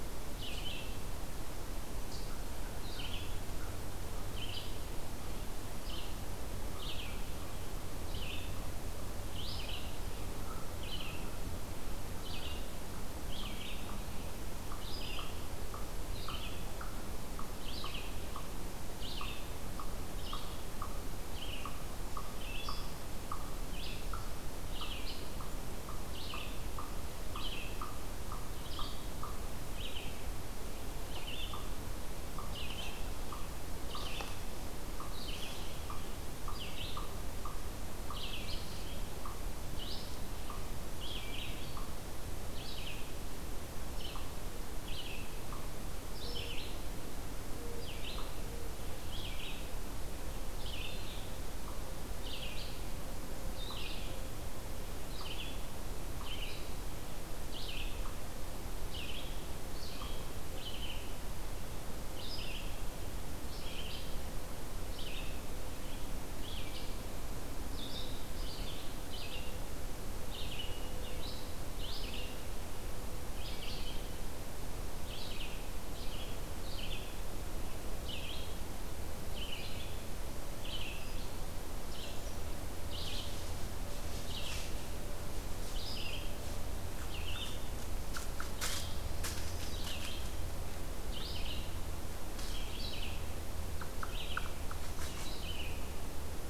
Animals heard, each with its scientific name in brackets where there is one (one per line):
Red-eyed Vireo (Vireo olivaceus)
Eastern Chipmunk (Tamias striatus)